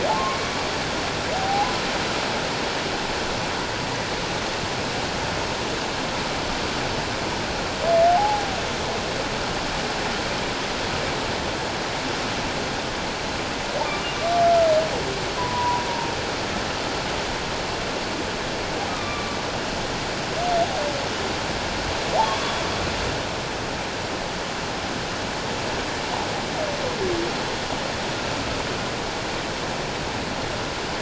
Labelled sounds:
1.3	1.7	humpback whale, 0.78 to 0.91 kHz
8.1	8.5	humpback whale, 0.78 to 0.91 kHz
15.4	15.9	humpback whale, 0.88 to 1.1 kHz
18.9	19.4	humpback whale, 1.1 to 3.8 kHz
22.2	22.6	humpback whale, 3.2 to 3.5 kHz

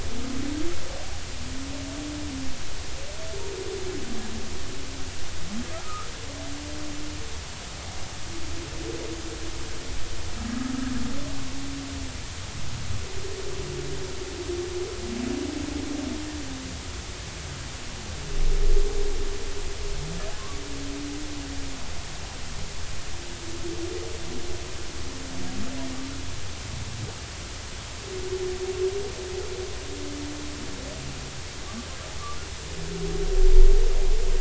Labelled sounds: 5.8	6.1	humpback whale, 1.2 to 1.4 kHz

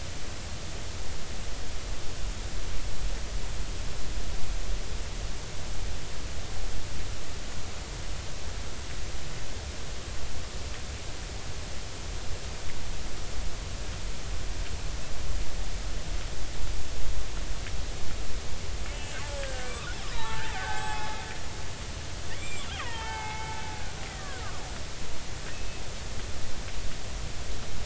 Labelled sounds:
18.9	21.1	killer whale, Bigg's (transient), 0.80 to 3.0 kHz
22.3	23.5	killer whale, Bigg's (transient), 0.80 to 7.6 kHz
24.1	24.4	killer whale, Bigg's (transient), 1.4 to 2.1 kHz
25.5	25.8	killer whale, Bigg's (transient), 2.5 to 2.7 kHz

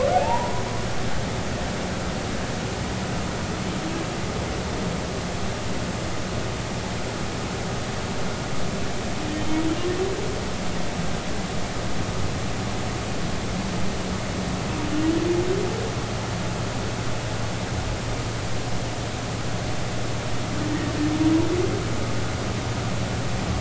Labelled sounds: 0.2	0.6	humpback whale, 0.83 to 1.1 kHz
9.3	9.6	humpback whale, 3.0 to 3.2 kHz
20.7	20.9	humpback whale, 1.8 to 1.9 kHz

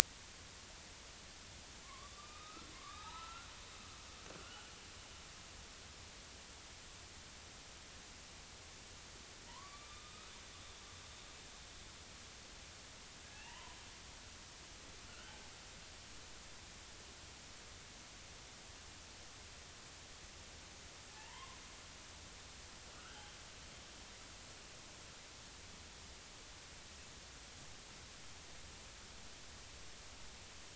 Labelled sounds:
1.8	3.5	killer whale, northern resident, A clan, AB subclan, 0.80 to 4.0 kHz
4.4	4.7	killer whale, northern resident, A clan, AB subclan, 1.3 to 3.1 kHz
9.5	10.3	killer whale, northern resident, A clan, AB subclan, 0.86 to 3.9 kHz
13.3	13.8	killer whale, northern resident, A clan, AB subclan, 0.83 to 3.0 kHz
15.1	15.4	killer whale, northern resident, A clan, AB subclan, 1.3 to 1.6 kHz
21.1	21.6	killer whale, northern resident, A clan, AB subclan, 0.80 to 1.1 kHz
23.0	23.3	killer whale, northern resident, A clan, AB subclan, 1.2 to 3.2 kHz

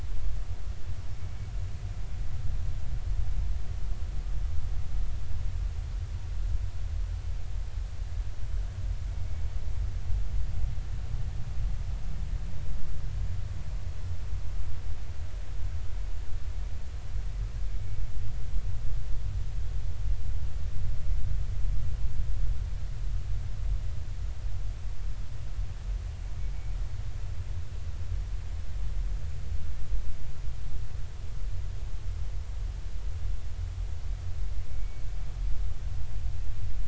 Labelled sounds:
34.7	35.0	humpback whale, 2.2 to 2.3 kHz

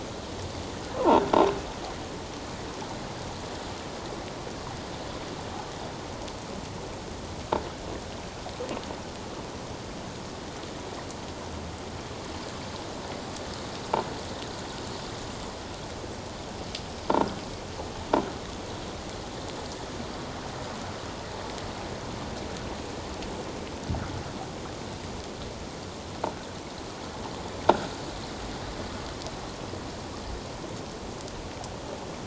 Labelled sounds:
17.1	17.3	croaking sound likely from a nearby submerged object, 1.3 to 1.5 kHz

